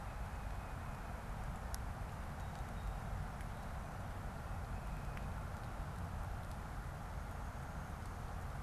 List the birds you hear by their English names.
Tufted Titmouse, Song Sparrow